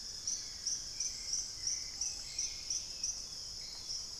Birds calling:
Thrush-like Wren (Campylorhynchus turdinus), Dusky-capped Greenlet (Pachysylvia hypoxantha), Chestnut-winged Foliage-gleaner (Dendroma erythroptera), Screaming Piha (Lipaugus vociferans), Black-capped Becard (Pachyramphus marginatus), Long-winged Antwren (Myrmotherula longipennis), Hauxwell's Thrush (Turdus hauxwelli)

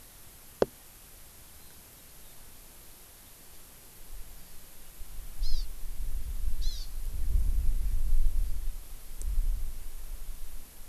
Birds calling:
Hawaii Amakihi (Chlorodrepanis virens)

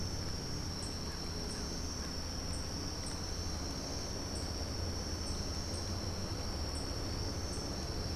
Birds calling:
unidentified bird

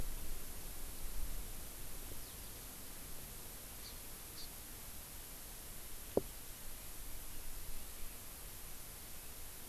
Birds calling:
Hawaii Amakihi (Chlorodrepanis virens), Eurasian Skylark (Alauda arvensis)

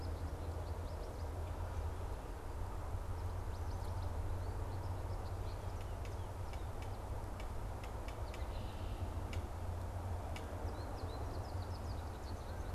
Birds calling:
American Goldfinch (Spinus tristis), Red-winged Blackbird (Agelaius phoeniceus)

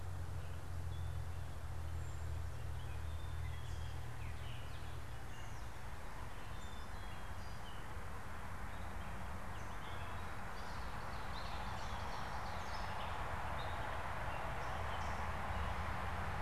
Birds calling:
Gray Catbird (Dumetella carolinensis), Ovenbird (Seiurus aurocapilla), Black-capped Chickadee (Poecile atricapillus)

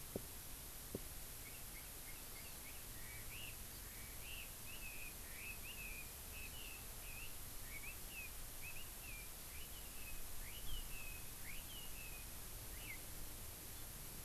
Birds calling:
Chinese Hwamei (Garrulax canorus)

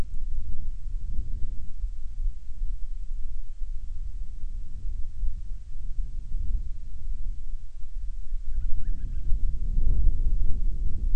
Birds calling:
Band-rumped Storm-Petrel (Hydrobates castro)

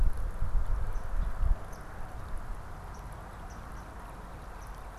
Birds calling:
Swamp Sparrow (Melospiza georgiana)

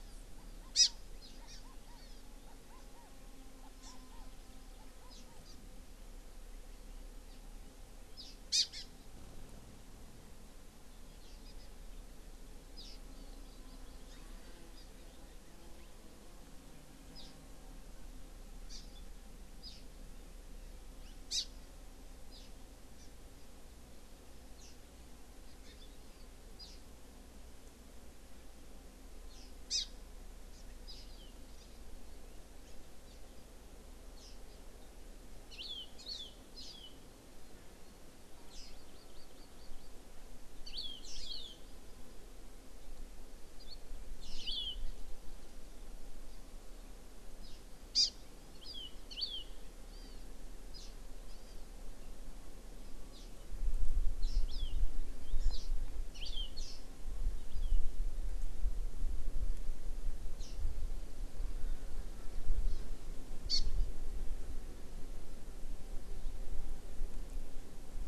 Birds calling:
Hawaii Amakihi (Chlorodrepanis virens), Chinese Hwamei (Garrulax canorus)

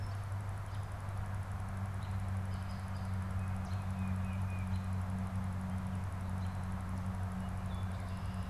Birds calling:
Tufted Titmouse (Baeolophus bicolor)

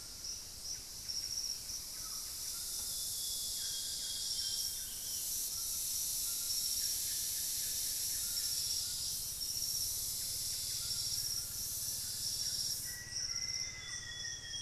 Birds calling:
unidentified bird, Buff-breasted Wren (Cantorchilus leucotis), Black-faced Antthrush (Formicarius analis), White-throated Toucan (Ramphastos tucanus), Amazonian Grosbeak (Cyanoloxia rothschildii)

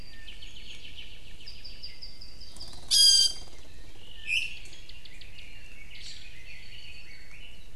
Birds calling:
Red-billed Leiothrix (Leiothrix lutea), Iiwi (Drepanis coccinea), Chinese Hwamei (Garrulax canorus), Apapane (Himatione sanguinea)

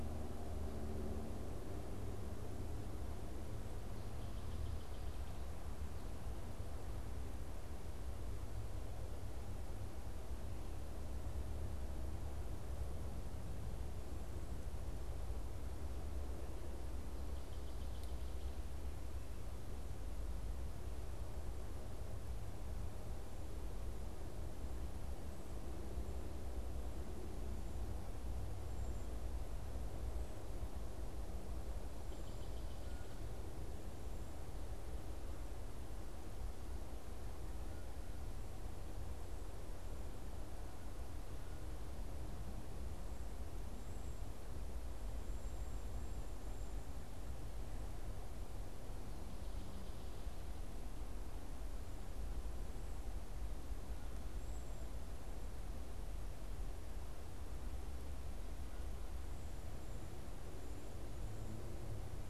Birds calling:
Cedar Waxwing (Bombycilla cedrorum), unidentified bird, Northern Waterthrush (Parkesia noveboracensis)

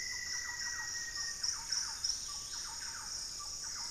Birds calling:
Hauxwell's Thrush (Turdus hauxwelli), Thrush-like Wren (Campylorhynchus turdinus), Black-faced Antthrush (Formicarius analis), Dusky-capped Greenlet (Pachysylvia hypoxantha)

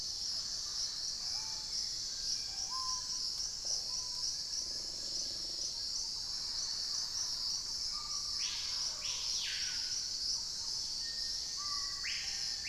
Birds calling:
Thrush-like Wren (Campylorhynchus turdinus), Black-faced Antthrush (Formicarius analis), Chestnut-winged Foliage-gleaner (Dendroma erythroptera), Dusky-capped Greenlet (Pachysylvia hypoxantha), Red-necked Woodpecker (Campephilus rubricollis), Screaming Piha (Lipaugus vociferans), Wing-barred Piprites (Piprites chloris)

